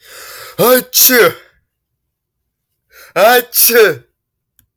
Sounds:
Sneeze